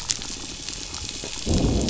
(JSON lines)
{"label": "biophony, growl", "recorder": "SoundTrap 500"}